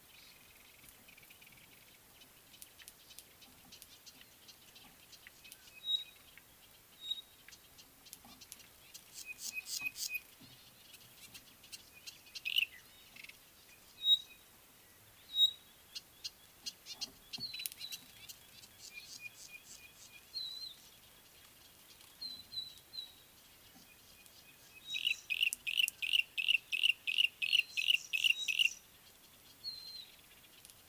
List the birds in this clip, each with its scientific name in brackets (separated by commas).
Pygmy Batis (Batis perkeo), Yellow-breasted Apalis (Apalis flavida), Red-backed Scrub-Robin (Cercotrichas leucophrys)